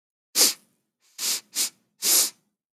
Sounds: Sniff